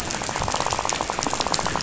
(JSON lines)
{"label": "biophony, rattle", "recorder": "SoundTrap 500"}